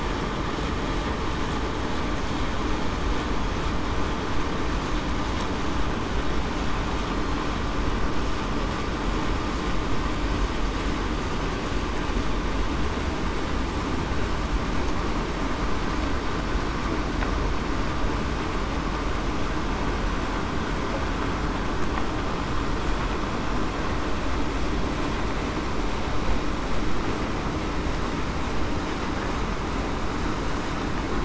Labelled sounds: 7.1	7.4	killer whale, southern resident, 4.2 to 4.3 kHz

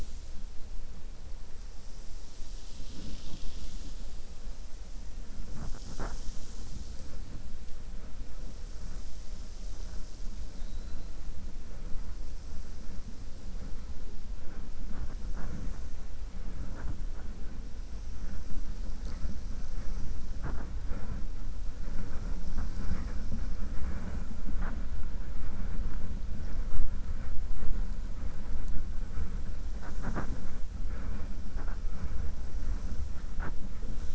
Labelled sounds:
10.5	11.1	killer whale, 3.7 to 4.4 kHz

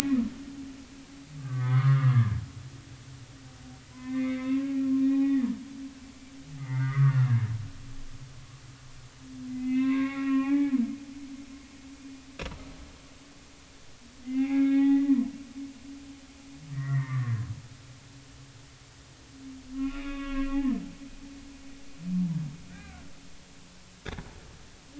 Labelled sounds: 1.4	2.4	humpback whale, 0.96 to 2.2 kHz
3.9	5.6	humpback whale, 0.80 to 3.8 kHz
6.6	7.4	humpback whale, 0.86 to 2.2 kHz
9.5	11.7	humpback whale, 0.80 to 3.8 kHz
14.2	15.2	humpback whale, 0.80 to 2.5 kHz
16.7	17.5	humpback whale, 0.86 to 2.2 kHz
19.7	20.7	humpback whale, 1.0 to 3.7 kHz
21.0	21.5	humpback whale, 3.2 to 3.4 kHz
22.7	23.0	humpback whale, 1.4 to 2.5 kHz

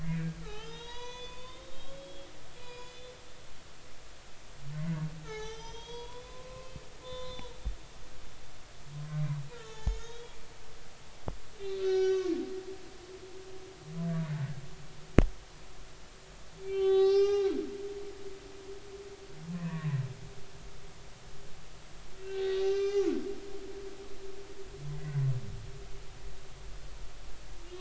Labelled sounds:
0.0	2.3	humpback whale, 0.80 to 6.5 kHz
2.5	3.1	humpback whale, 0.93 to 5.1 kHz
5.2	8.4	humpback whale, 0.80 to 6.3 kHz
9.5	10.4	humpback whale, 0.80 to 7.0 kHz
11.6	12.3	humpback whale, 1.3 to 6.9 kHz
16.6	17.5	humpback whale, 0.80 to 6.5 kHz
19.5	20.0	humpback whale, 0.93 to 2.0 kHz
22.2	23.1	humpback whale, 1.0 to 6.1 kHz
25.0	25.3	humpback whale, 1.9 to 2.1 kHz

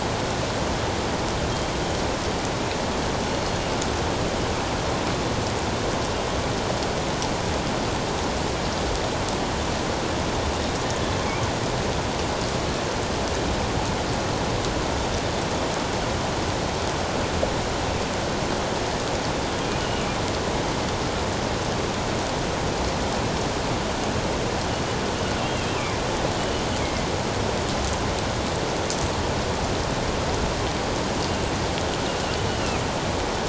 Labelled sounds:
3.3	3.6	killer whale, northern resident, G clan, 4.2 to 4.4 kHz
10.8	11.1	killer whale, northern resident, G clan, 1.7 to 1.9 kHz
19.8	20.1	killer whale, northern resident, G clan, 2.8 to 3.1 kHz
25.5	26.0	killer whale, northern resident, G clan, 1.9 to 2.9 kHz
26.8	27.1	killer whale, northern resident, G clan, 2.0 to 2.3 kHz
32.5	32.8	killer whale, northern resident, G clan, 2.3 to 3.0 kHz

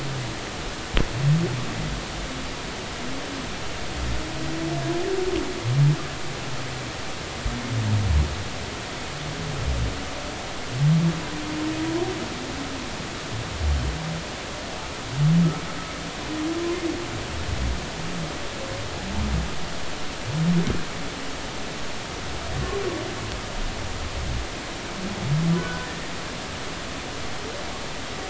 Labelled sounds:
25.6	25.9	humpback whale, 1.4 to 1.6 kHz

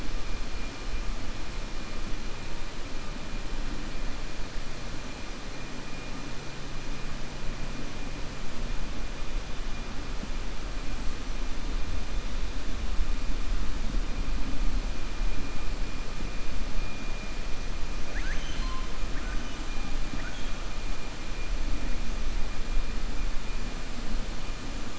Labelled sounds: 18.0	19.6	killer whale, 1.0 to 6.4 kHz

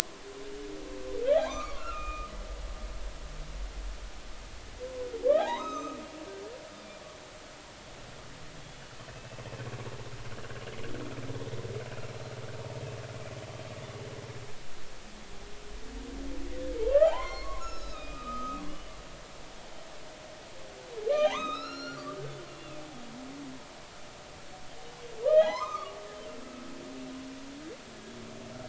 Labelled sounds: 1.2	2.3	humpback whale, 0.80 to 5.0 kHz
5.4	6.0	humpback whale, 0.80 to 6.4 kHz
9.1	9.4	humpback whale, 2.5 to 2.7 kHz
13.4	13.7	humpback whale, 2.9 to 3.3 kHz
16.9	18.9	humpback whale, 0.80 to 6.8 kHz
21.2	22.1	humpback whale, 0.80 to 6.4 kHz
22.5	22.8	humpback whale, 2.4 to 3.6 kHz
25.2	26.0	humpback whale, 0.80 to 6.4 kHz

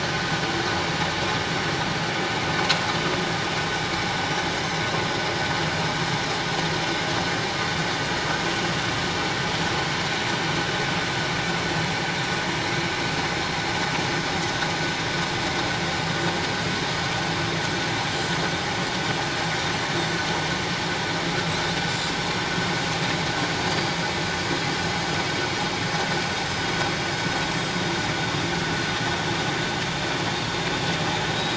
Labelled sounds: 23.7	24.0	Pacific white-sided dolphin, 4.6 to 4.8 kHz

